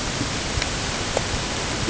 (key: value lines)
label: ambient
recorder: HydroMoth